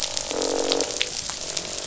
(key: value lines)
label: biophony, croak
recorder: SoundTrap 500